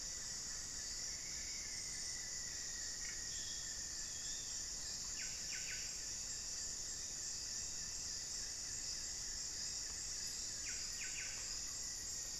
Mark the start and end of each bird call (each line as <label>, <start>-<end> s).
Rufous-fronted Antthrush (Formicarius rufifrons), 0.0-3.9 s
Black-fronted Nunbird (Monasa nigrifrons), 0.0-11.4 s
Buff-breasted Wren (Cantorchilus leucotis), 0.0-12.4 s
unidentified bird, 3.0-4.8 s
Black-faced Antthrush (Formicarius analis), 10.5-12.4 s